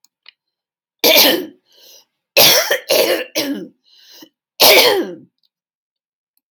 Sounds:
Throat clearing